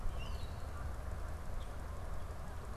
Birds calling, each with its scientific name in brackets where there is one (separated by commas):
unidentified bird, Canada Goose (Branta canadensis), Common Grackle (Quiscalus quiscula)